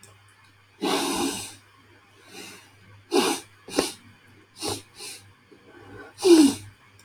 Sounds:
Sniff